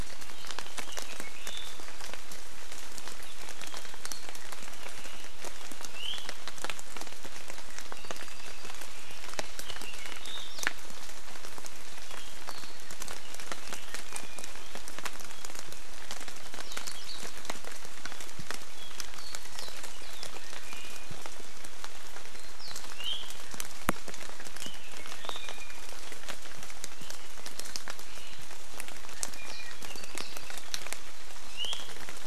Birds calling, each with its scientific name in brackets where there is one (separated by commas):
Apapane (Himatione sanguinea), Iiwi (Drepanis coccinea)